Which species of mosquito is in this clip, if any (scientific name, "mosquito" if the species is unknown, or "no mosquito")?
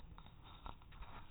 no mosquito